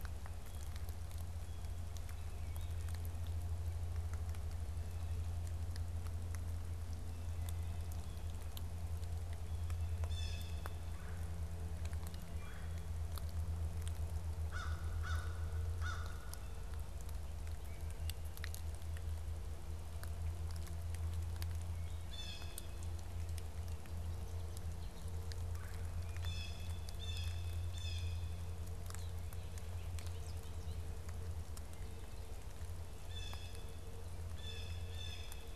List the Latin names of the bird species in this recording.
Cyanocitta cristata, Melanerpes carolinus, Corvus brachyrhynchos, Dolichonyx oryzivorus